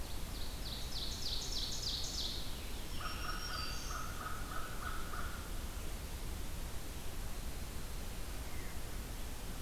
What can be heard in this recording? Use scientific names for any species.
Seiurus aurocapilla, Piranga olivacea, Setophaga virens, Corvus brachyrhynchos, Catharus fuscescens